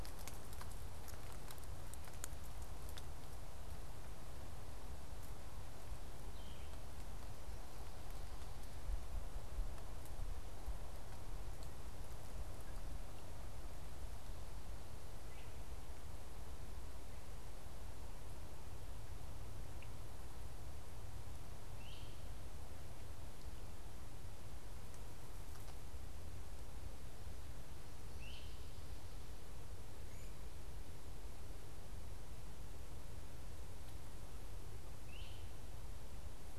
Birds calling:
Great Crested Flycatcher (Myiarchus crinitus)
unidentified bird

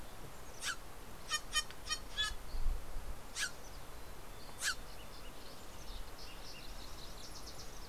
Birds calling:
Steller's Jay (Cyanocitta stelleri)
Dusky Flycatcher (Empidonax oberholseri)
Mountain Chickadee (Poecile gambeli)
Fox Sparrow (Passerella iliaca)

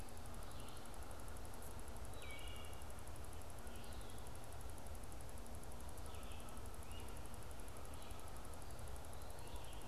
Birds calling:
Red-eyed Vireo (Vireo olivaceus)
Wood Thrush (Hylocichla mustelina)
Great Crested Flycatcher (Myiarchus crinitus)

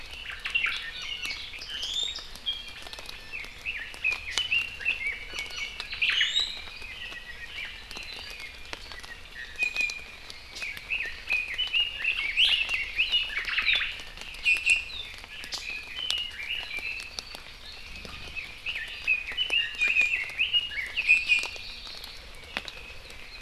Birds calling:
Omao (Myadestes obscurus)
Apapane (Himatione sanguinea)
Hawaii Amakihi (Chlorodrepanis virens)
Red-billed Leiothrix (Leiothrix lutea)
Iiwi (Drepanis coccinea)

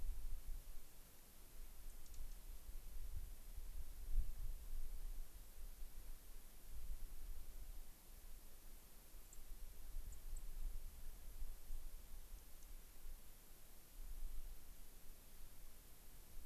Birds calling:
Dark-eyed Junco (Junco hyemalis)

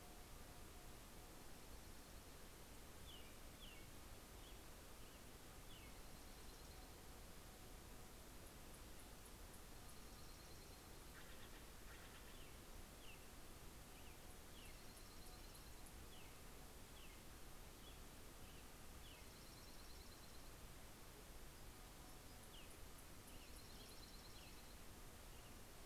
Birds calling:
Steller's Jay (Cyanocitta stelleri)
American Robin (Turdus migratorius)
Dark-eyed Junco (Junco hyemalis)

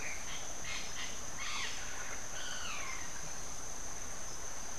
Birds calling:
White-fronted Parrot (Amazona albifrons)

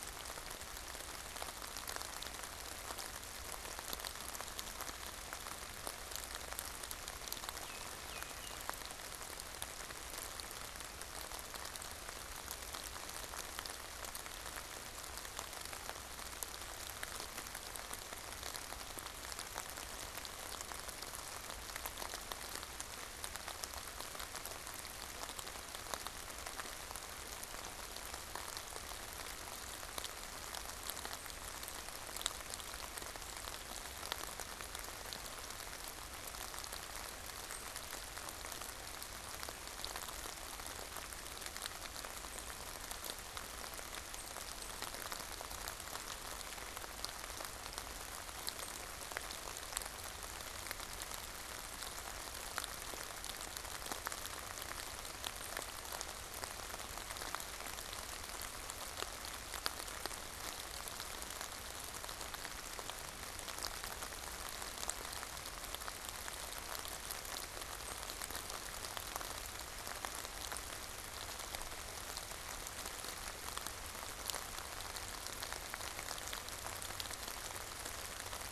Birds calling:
Baltimore Oriole (Icterus galbula)

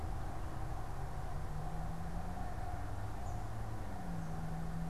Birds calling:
Eastern Kingbird (Tyrannus tyrannus)

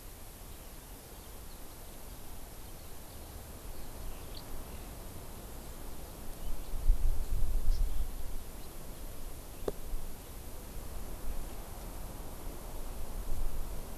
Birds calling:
Eurasian Skylark (Alauda arvensis)
Hawaii Amakihi (Chlorodrepanis virens)

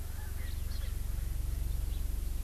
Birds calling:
Erckel's Francolin (Pternistis erckelii)

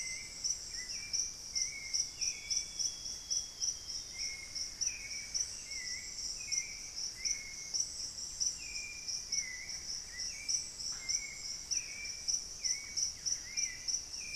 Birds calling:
Buff-breasted Wren (Cantorchilus leucotis)
Hauxwell's Thrush (Turdus hauxwelli)
Amazonian Grosbeak (Cyanoloxia rothschildii)
Cinnamon-throated Woodcreeper (Dendrexetastes rufigula)

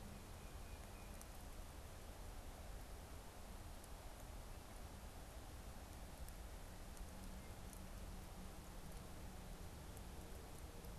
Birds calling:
Tufted Titmouse (Baeolophus bicolor)

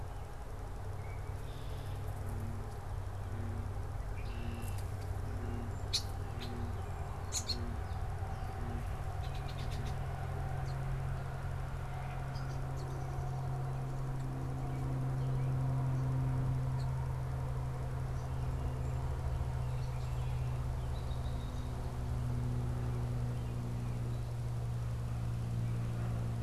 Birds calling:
American Robin (Turdus migratorius)
Song Sparrow (Melospiza melodia)
Red-winged Blackbird (Agelaius phoeniceus)

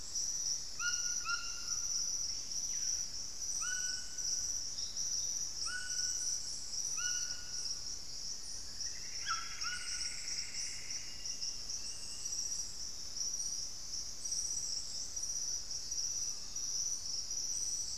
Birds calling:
Screaming Piha (Lipaugus vociferans)
White-throated Toucan (Ramphastos tucanus)
Plumbeous Antbird (Myrmelastes hyperythrus)

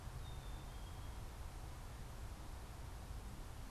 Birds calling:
Black-capped Chickadee (Poecile atricapillus)

